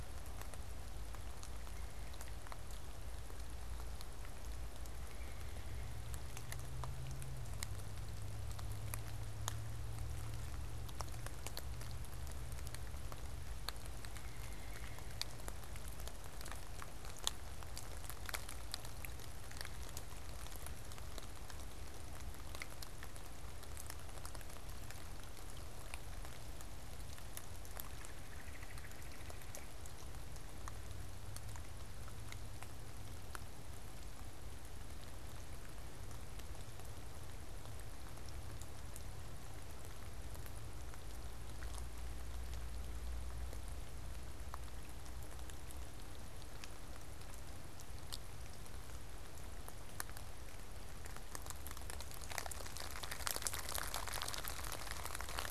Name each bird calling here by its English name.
unidentified bird